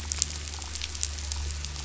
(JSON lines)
{"label": "anthrophony, boat engine", "recorder": "SoundTrap 500"}